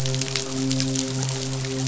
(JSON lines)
{"label": "biophony, midshipman", "recorder": "SoundTrap 500"}